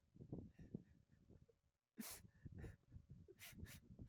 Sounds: Sniff